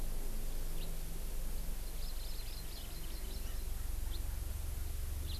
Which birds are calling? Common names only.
House Finch, Hawaii Amakihi